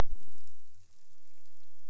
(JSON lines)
{"label": "biophony", "recorder": "SoundTrap 300"}